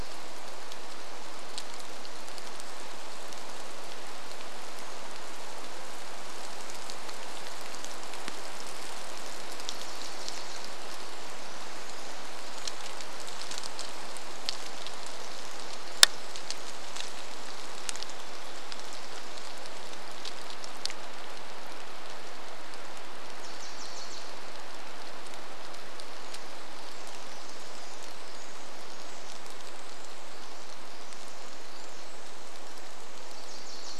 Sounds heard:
Pacific Wren song, rain, Varied Thrush song, Wilson's Warbler song

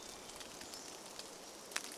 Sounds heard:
Hermit Thrush song, rain, Pacific-slope Flycatcher song

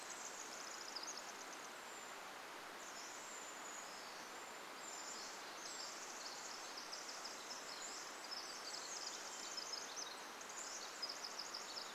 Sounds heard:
Pacific-slope Flycatcher song, Varied Thrush song, Pacific Wren song, Brown Creeper call, Chestnut-backed Chickadee call

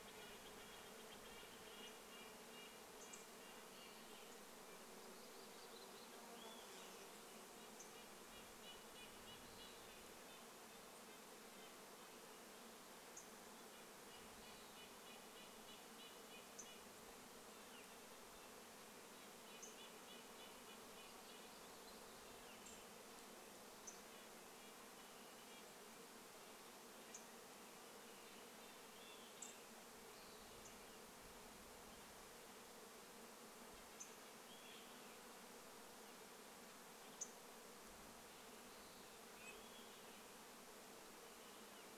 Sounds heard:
Northern Flicker call, Red-breasted Nuthatch song, warbler song, unidentified bird chip note, unidentified sound, Steller's Jay call, Western Wood-Pewee song, insect buzz, Olive-sided Flycatcher song

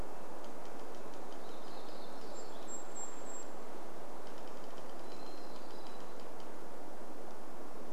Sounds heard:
warbler song, tree creak, Hermit Thrush song, Golden-crowned Kinglet song

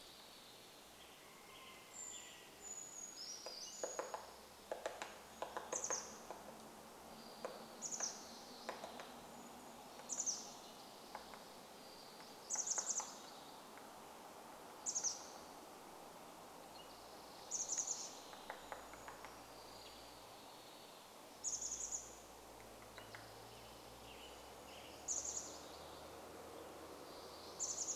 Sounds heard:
rooster crow, MacGillivray's Warbler song, Brown Creeper song, Western Tanager call, Western Tanager song, Chestnut-backed Chickadee call, Spotted Towhee song, Townsend's Solitaire call, woodpecker drumming

